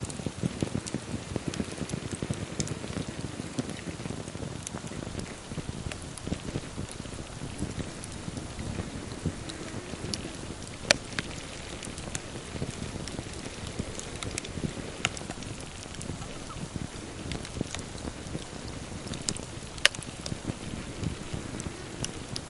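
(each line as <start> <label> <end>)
0.0 A fire burns steadily in a rhythmic pattern. 22.5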